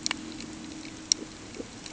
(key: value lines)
label: anthrophony, boat engine
recorder: HydroMoth